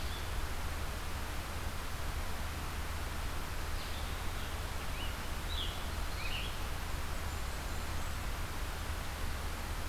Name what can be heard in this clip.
Red-eyed Vireo, Scarlet Tanager, Blackburnian Warbler